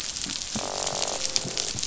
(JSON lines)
{"label": "biophony, croak", "recorder": "SoundTrap 500"}
{"label": "biophony", "recorder": "SoundTrap 500"}